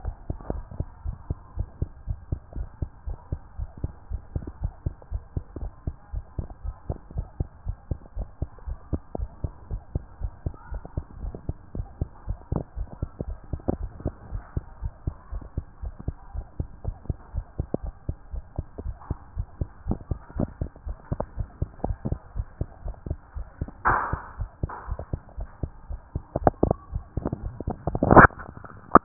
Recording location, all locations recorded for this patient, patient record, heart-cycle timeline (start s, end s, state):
tricuspid valve (TV)
aortic valve (AV)+pulmonary valve (PV)+tricuspid valve (TV)+tricuspid valve (TV)+mitral valve (MV)
#Age: Child
#Sex: Male
#Height: 111.0 cm
#Weight: 24.0 kg
#Pregnancy status: False
#Murmur: Absent
#Murmur locations: nan
#Most audible location: nan
#Systolic murmur timing: nan
#Systolic murmur shape: nan
#Systolic murmur grading: nan
#Systolic murmur pitch: nan
#Systolic murmur quality: nan
#Diastolic murmur timing: nan
#Diastolic murmur shape: nan
#Diastolic murmur grading: nan
#Diastolic murmur pitch: nan
#Diastolic murmur quality: nan
#Outcome: Normal
#Campaign: 2014 screening campaign
0.00	1.04	unannotated
1.04	1.16	S1
1.16	1.28	systole
1.28	1.38	S2
1.38	1.56	diastole
1.56	1.68	S1
1.68	1.80	systole
1.80	1.90	S2
1.90	2.08	diastole
2.08	2.18	S1
2.18	2.30	systole
2.30	2.40	S2
2.40	2.56	diastole
2.56	2.68	S1
2.68	2.80	systole
2.80	2.90	S2
2.90	3.06	diastole
3.06	3.18	S1
3.18	3.30	systole
3.30	3.40	S2
3.40	3.58	diastole
3.58	3.70	S1
3.70	3.82	systole
3.82	3.92	S2
3.92	4.10	diastole
4.10	4.22	S1
4.22	4.34	systole
4.34	4.44	S2
4.44	4.62	diastole
4.62	4.72	S1
4.72	4.84	systole
4.84	4.94	S2
4.94	5.12	diastole
5.12	5.22	S1
5.22	5.34	systole
5.34	5.44	S2
5.44	5.60	diastole
5.60	5.72	S1
5.72	5.86	systole
5.86	5.94	S2
5.94	6.12	diastole
6.12	6.24	S1
6.24	6.38	systole
6.38	6.48	S2
6.48	6.64	diastole
6.64	6.74	S1
6.74	6.88	systole
6.88	6.98	S2
6.98	7.16	diastole
7.16	7.26	S1
7.26	7.38	systole
7.38	7.48	S2
7.48	7.66	diastole
7.66	7.76	S1
7.76	7.90	systole
7.90	7.98	S2
7.98	8.16	diastole
8.16	8.28	S1
8.28	8.40	systole
8.40	8.48	S2
8.48	8.66	diastole
8.66	8.78	S1
8.78	8.92	systole
8.92	9.00	S2
9.00	9.18	diastole
9.18	9.30	S1
9.30	9.42	systole
9.42	9.52	S2
9.52	9.70	diastole
9.70	9.82	S1
9.82	9.94	systole
9.94	10.02	S2
10.02	10.20	diastole
10.20	10.32	S1
10.32	10.44	systole
10.44	10.54	S2
10.54	10.72	diastole
10.72	10.82	S1
10.82	10.96	systole
10.96	11.04	S2
11.04	11.22	diastole
11.22	11.34	S1
11.34	11.48	systole
11.48	11.56	S2
11.56	11.76	diastole
11.76	11.86	S1
11.86	12.00	systole
12.00	12.08	S2
12.08	12.28	diastole
12.28	12.38	S1
12.38	12.52	systole
12.52	12.64	S2
12.64	12.78	diastole
12.78	12.88	S1
12.88	13.00	systole
13.00	13.10	S2
13.10	13.26	diastole
13.26	13.38	S1
13.38	13.52	systole
13.52	13.60	S2
13.60	13.78	diastole
13.78	13.90	S1
13.90	14.04	systole
14.04	14.14	S2
14.14	14.32	diastole
14.32	14.42	S1
14.42	14.56	systole
14.56	14.64	S2
14.64	14.82	diastole
14.82	14.92	S1
14.92	15.06	systole
15.06	15.14	S2
15.14	15.32	diastole
15.32	15.44	S1
15.44	15.56	systole
15.56	15.64	S2
15.64	15.82	diastole
15.82	15.94	S1
15.94	16.06	systole
16.06	16.16	S2
16.16	16.34	diastole
16.34	16.46	S1
16.46	16.58	systole
16.58	16.68	S2
16.68	16.84	diastole
16.84	16.96	S1
16.96	17.08	systole
17.08	17.16	S2
17.16	17.34	diastole
17.34	17.46	S1
17.46	17.58	systole
17.58	17.68	S2
17.68	17.82	diastole
17.82	17.94	S1
17.94	18.08	systole
18.08	18.16	S2
18.16	18.32	diastole
18.32	18.44	S1
18.44	18.56	systole
18.56	18.66	S2
18.66	18.84	diastole
18.84	18.96	S1
18.96	19.08	systole
19.08	19.18	S2
19.18	19.36	diastole
19.36	19.48	S1
19.48	19.60	systole
19.60	19.68	S2
19.68	19.86	diastole
19.86	19.98	S1
19.98	20.10	systole
20.10	20.18	S2
20.18	20.36	diastole
20.36	20.50	S1
20.50	20.60	systole
20.60	20.70	S2
20.70	20.86	diastole
20.86	20.96	S1
20.96	21.10	systole
21.10	21.20	S2
21.20	21.38	diastole
21.38	21.48	S1
21.48	21.60	systole
21.60	21.68	S2
21.68	21.84	diastole
21.84	21.96	S1
21.96	22.06	systole
22.06	22.18	S2
22.18	22.36	diastole
22.36	22.46	S1
22.46	22.60	systole
22.60	22.68	S2
22.68	22.84	diastole
22.84	22.96	S1
22.96	23.08	systole
23.08	23.18	S2
23.18	23.36	diastole
23.36	23.46	S1
23.46	23.60	systole
23.60	23.68	S2
23.68	23.86	diastole
23.86	23.98	S1
23.98	24.12	systole
24.12	24.20	S2
24.20	24.38	diastole
24.38	24.50	S1
24.50	24.62	systole
24.62	24.70	S2
24.70	24.88	diastole
24.88	25.00	S1
25.00	25.12	systole
25.12	25.20	S2
25.20	25.38	diastole
25.38	25.48	S1
25.48	25.62	systole
25.62	25.72	S2
25.72	25.90	diastole
25.90	26.00	S1
26.00	26.14	systole
26.14	26.22	S2
26.22	26.40	diastole
26.40	29.04	unannotated